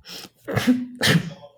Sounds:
Sneeze